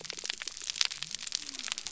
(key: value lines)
label: biophony
recorder: SoundTrap 300